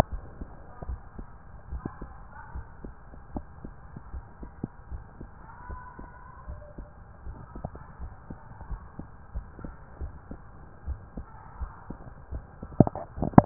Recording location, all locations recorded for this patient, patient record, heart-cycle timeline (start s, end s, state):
tricuspid valve (TV)
aortic valve (AV)+pulmonary valve (PV)+tricuspid valve (TV)+mitral valve (MV)
#Age: Child
#Sex: Male
#Height: 149.0 cm
#Weight: 52.9 kg
#Pregnancy status: False
#Murmur: Present
#Murmur locations: pulmonary valve (PV)+tricuspid valve (TV)
#Most audible location: tricuspid valve (TV)
#Systolic murmur timing: Early-systolic
#Systolic murmur shape: Plateau
#Systolic murmur grading: I/VI
#Systolic murmur pitch: Low
#Systolic murmur quality: Blowing
#Diastolic murmur timing: nan
#Diastolic murmur shape: nan
#Diastolic murmur grading: nan
#Diastolic murmur pitch: nan
#Diastolic murmur quality: nan
#Outcome: Normal
#Campaign: 2015 screening campaign
0.00	0.86	unannotated
0.86	1.00	S1
1.00	1.18	systole
1.18	1.26	S2
1.26	1.72	diastole
1.72	1.84	S1
1.84	2.02	systole
2.02	2.14	S2
2.14	2.54	diastole
2.54	2.66	S1
2.66	2.84	systole
2.84	2.92	S2
2.92	3.34	diastole
3.34	3.46	S1
3.46	3.64	systole
3.64	3.74	S2
3.74	4.14	diastole
4.14	4.24	S1
4.24	4.42	systole
4.42	4.50	S2
4.50	4.90	diastole
4.90	5.02	S1
5.02	5.18	systole
5.18	5.30	S2
5.30	5.67	diastole
5.67	5.80	S1
5.80	5.97	systole
5.97	6.08	S2
6.08	6.46	diastole
6.46	6.60	S1
6.60	6.75	systole
6.75	6.90	S2
6.90	7.23	diastole
7.23	7.38	S1
7.38	7.54	systole
7.54	7.69	S2
7.69	7.98	diastole
7.98	8.12	S1
8.12	8.28	systole
8.28	8.38	S2
8.38	8.68	diastole
8.68	8.82	S1
8.82	8.97	systole
8.97	9.08	S2
9.08	9.31	diastole
9.31	9.46	S1
9.46	9.64	systole
9.64	9.74	S2
9.74	10.00	diastole
10.00	10.12	S1
10.12	10.29	systole
10.29	10.40	S2
10.40	10.86	diastole
10.86	11.00	S1
11.00	11.16	systole
11.16	11.26	S2
11.26	11.60	diastole
11.60	11.72	S1
11.72	11.88	systole
11.88	11.98	S2
11.98	12.30	diastole
12.30	12.44	S1
12.44	12.59	systole
12.59	12.72	S2
12.72	13.46	unannotated